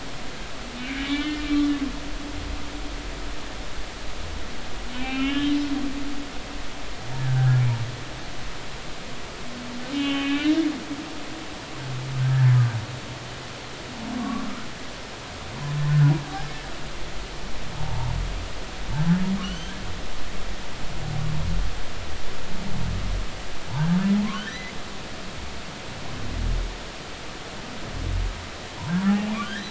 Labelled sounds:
1.1	1.7	humpback whale, 1.7 to 4.1 kHz
5.0	5.6	humpback whale, 2.0 to 3.2 kHz
7.1	7.6	humpback whale, 1.4 to 1.8 kHz
9.9	10.6	humpback whale, 1.1 to 3.2 kHz
14.2	14.5	humpback whale, 1.0 to 1.2 kHz
17.8	18.1	humpback whale, 0.80 to 0.99 kHz
19.4	19.7	humpback whale, 2.7 to 3.4 kHz
24.5	24.8	humpback whale, 1.7 to 2.3 kHz
28.8	29.6	humpback whale, 0.80 to 1.9 kHz

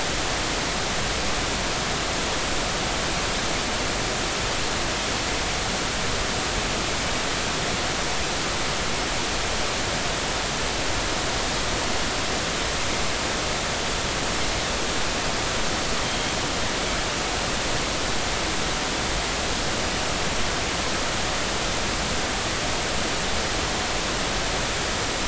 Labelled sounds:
16.0	16.3	Pacific white-sided dolphin, 3.1 to 3.3 kHz

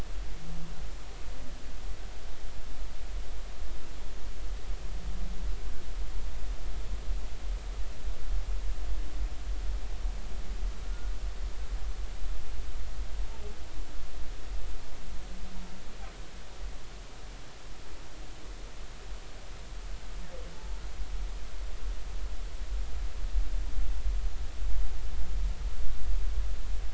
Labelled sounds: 10.8	11.1	humpback whale, 1.3 to 1.5 kHz
20.5	20.8	humpback whale, 0.83 to 0.99 kHz

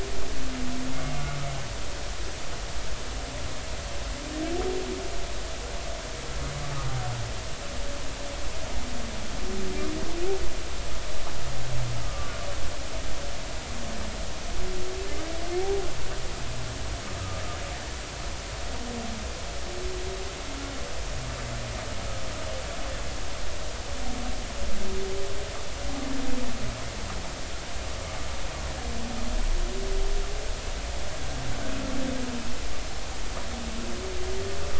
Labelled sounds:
12.0	12.3	humpback whale, 1.1 to 1.3 kHz
15.6	15.9	humpback whale, 0.80 to 0.90 kHz

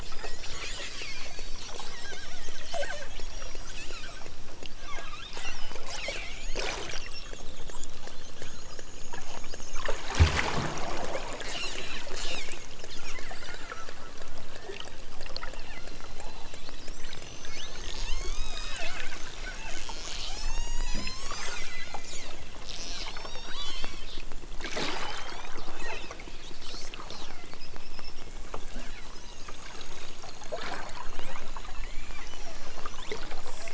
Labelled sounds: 0.2	0.5	killer whale, southern Alaska resident, 1.5 to 3.5 kHz
2.6	4.3	killer whale, southern Alaska resident, 0.09 to 6.0 kHz
15.3	16.9	killer whale, southern Alaska resident, 0.18 to 4.6 kHz
17.4	19.0	killer whale, southern Alaska resident, 0.55 to 8.0 kHz
20.2	22.2	killer whale, southern Alaska resident, 0.55 to 8.0 kHz
23.0	24.1	killer whale, southern Alaska resident, 0.55 to 8.0 kHz
25.0	26.2	killer whale, southern Alaska resident, 1.8 to 8.0 kHz
27.0	27.6	killer whale, southern Alaska resident, 1.7 to 4.5 kHz
29.2	29.7	killer whale, southern Alaska resident, 1.4 to 4.2 kHz
31.1	33.1	killer whale, southern Alaska resident, 1.4 to 6.3 kHz

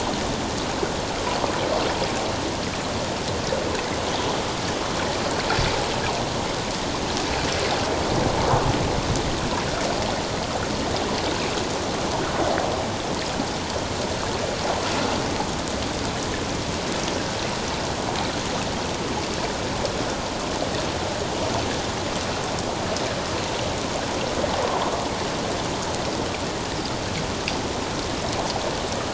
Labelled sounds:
24.6	24.9	water noise, 0.88 to 1.1 kHz

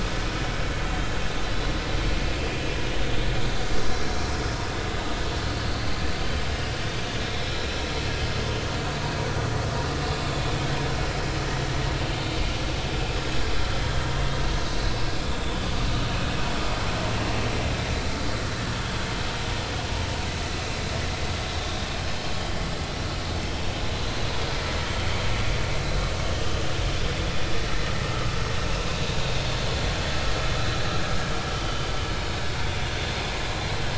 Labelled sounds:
6.2	6.4	vessel noise, 3.0 to 3.2 kHz
22.4	22.6	vessel noise, 3.0 to 3.4 kHz
31.6	31.8	vessel noise, 2.9 to 3.2 kHz

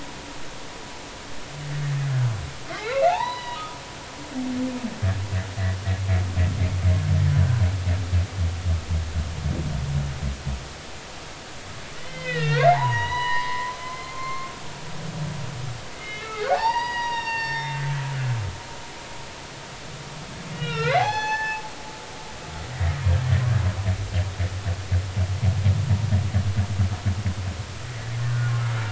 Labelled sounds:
2.7	3.6	humpback whale, 0.80 to 5.0 kHz
12.0	14.5	humpback whale, 0.80 to 4.3 kHz
16.0	17.8	humpback whale, 0.80 to 5.8 kHz
20.5	21.6	humpback whale, 0.80 to 6.1 kHz

